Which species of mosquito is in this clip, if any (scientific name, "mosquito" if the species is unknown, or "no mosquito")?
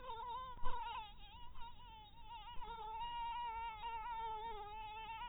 mosquito